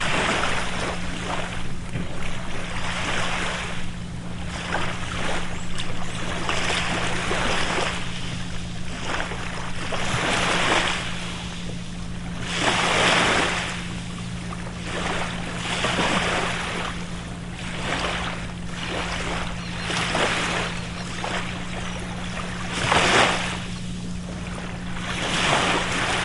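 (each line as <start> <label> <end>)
0.0 Small surf waves near the shore. 26.2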